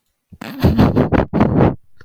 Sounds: Laughter